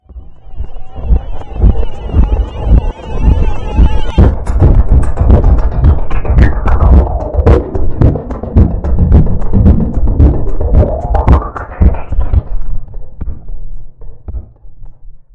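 An electronic song with a constant beat. 0:00.0 - 0:15.3

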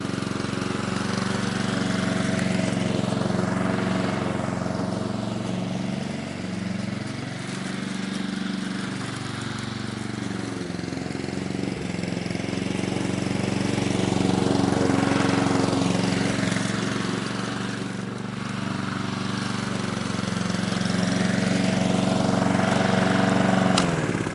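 A lawn mower with a loud engine is cutting grass. 0:00.0 - 0:23.7
A lawn mower engine sputters as it is being turned off. 0:23.8 - 0:24.3

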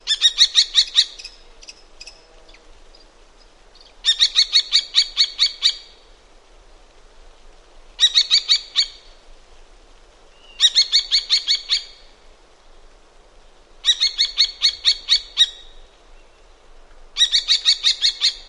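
A bird calls repeatedly with pauses between each series of calls in an outdoor area near water. 0:04.0 - 0:05.9

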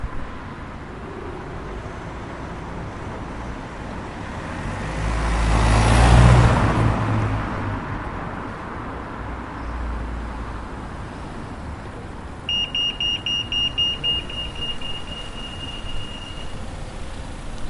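City sounds. 0:00.0 - 0:17.7
The sound of a heavy truck passing by. 0:03.8 - 0:09.9
The sound of a traffic light. 0:12.3 - 0:17.7

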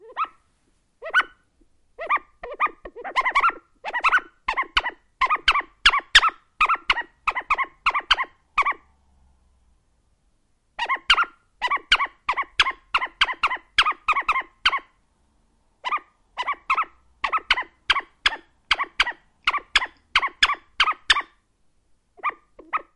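A bird rhythmically chirps in a quiet environment. 0:00.0 - 0:09.0
A bird rhythmically chirps in a quiet environment. 0:10.6 - 0:15.0
A bird rhythmically chirps in a quiet environment. 0:15.8 - 0:21.4
A bird rhythmically chirps in a quiet environment. 0:22.1 - 0:23.0

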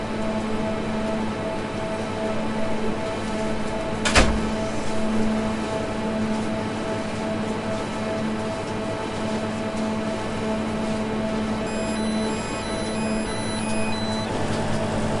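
A soft mechanical whirring rotates steadily in the background. 0:00.0 - 0:15.2
An industrial air conditioner hums steadily indoors. 0:00.0 - 0:15.2
A door closes sharply. 0:04.0 - 0:04.5
A high-pitched beep repeats continuously. 0:11.4 - 0:14.4

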